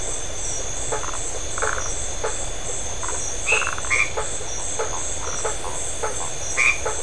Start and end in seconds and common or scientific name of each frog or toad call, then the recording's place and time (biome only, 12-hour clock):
0.8	7.0	blacksmith tree frog
1.6	1.9	Phyllomedusa distincta
3.4	4.4	white-edged tree frog
3.6	4.0	Phyllomedusa distincta
5.2	5.5	Phyllomedusa distincta
Atlantic Forest, 8:15pm